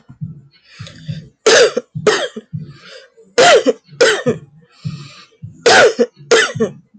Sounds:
Cough